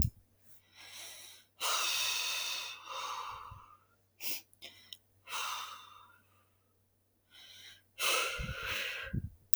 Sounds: Sigh